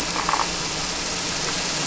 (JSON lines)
{"label": "anthrophony, boat engine", "recorder": "SoundTrap 300"}